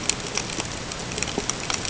{"label": "ambient", "recorder": "HydroMoth"}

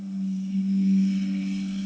{"label": "anthrophony, boat engine", "recorder": "HydroMoth"}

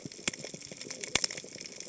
{"label": "biophony, cascading saw", "recorder": "HydroMoth"}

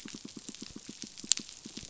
{"label": "biophony, pulse", "recorder": "SoundTrap 500"}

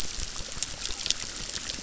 {"label": "biophony, crackle", "recorder": "SoundTrap 600"}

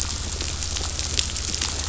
{"label": "anthrophony, boat engine", "recorder": "SoundTrap 500"}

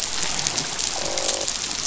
{"label": "biophony, croak", "recorder": "SoundTrap 500"}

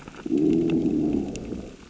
{"label": "biophony, growl", "recorder": "SoundTrap 600 or HydroMoth"}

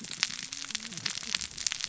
{"label": "biophony, cascading saw", "recorder": "SoundTrap 600 or HydroMoth"}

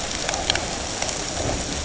{"label": "ambient", "recorder": "HydroMoth"}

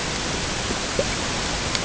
{"label": "ambient", "recorder": "HydroMoth"}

